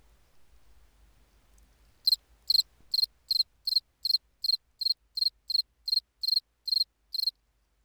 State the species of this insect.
Gryllus bimaculatus